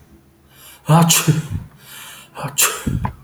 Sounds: Sneeze